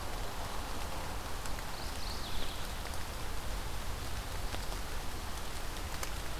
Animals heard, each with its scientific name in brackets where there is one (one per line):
Mourning Warbler (Geothlypis philadelphia)